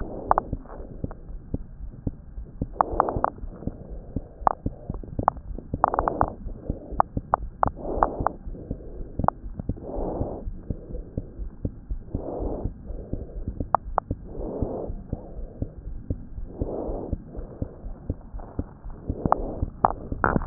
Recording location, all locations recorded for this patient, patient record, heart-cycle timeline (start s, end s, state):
aortic valve (AV)
aortic valve (AV)+pulmonary valve (PV)+tricuspid valve (TV)+mitral valve (MV)
#Age: Child
#Sex: Female
#Height: 92.0 cm
#Weight: 14.0 kg
#Pregnancy status: False
#Murmur: Absent
#Murmur locations: nan
#Most audible location: nan
#Systolic murmur timing: nan
#Systolic murmur shape: nan
#Systolic murmur grading: nan
#Systolic murmur pitch: nan
#Systolic murmur quality: nan
#Diastolic murmur timing: nan
#Diastolic murmur shape: nan
#Diastolic murmur grading: nan
#Diastolic murmur pitch: nan
#Diastolic murmur quality: nan
#Outcome: Abnormal
#Campaign: 2015 screening campaign
0.00	10.42	unannotated
10.42	10.58	S1
10.58	10.68	systole
10.68	10.78	S2
10.78	10.92	diastole
10.92	11.04	S1
11.04	11.18	systole
11.18	11.26	S2
11.26	11.40	diastole
11.40	11.52	S1
11.52	11.62	systole
11.62	11.72	S2
11.72	11.90	diastole
11.90	12.04	S1
12.04	12.12	systole
12.12	12.26	S2
12.26	12.40	diastole
12.40	12.52	S1
12.52	12.61	systole
12.61	12.76	S2
12.76	12.88	diastole
12.88	12.99	S1
12.99	13.08	systole
13.08	13.22	S2
13.22	13.36	diastole
13.36	13.48	S1
13.48	13.58	systole
13.58	13.68	S2
13.68	13.86	diastole
13.86	14.00	S1
14.00	14.10	systole
14.10	14.20	S2
14.20	14.38	diastole
14.38	14.52	S1
14.52	14.60	systole
14.60	14.70	S2
14.70	14.88	diastole
14.88	15.02	S1
15.02	15.11	systole
15.11	15.22	S2
15.22	15.36	diastole
15.36	15.50	S1
15.50	15.60	systole
15.60	15.70	S2
15.70	15.86	diastole
15.86	15.98	S1
15.98	16.09	systole
16.09	16.19	S2
16.19	16.38	diastole
16.38	16.50	S1
16.50	16.58	systole
16.58	16.68	S2
16.68	16.84	diastole
16.84	17.00	S1
17.00	17.10	systole
17.10	17.17	S2
17.17	17.35	diastole
17.35	17.46	S1
17.46	17.58	systole
17.58	17.68	S2
17.68	17.84	diastole
17.84	17.94	S1
17.94	18.06	systole
18.06	18.15	S2
18.15	18.34	diastole
18.34	18.44	S1
18.44	18.57	systole
18.57	18.66	S2
18.66	18.84	diastole
18.84	18.94	S1
18.94	19.08	systole
19.08	19.18	S2
19.18	20.46	unannotated